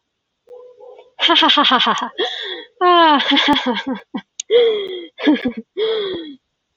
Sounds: Laughter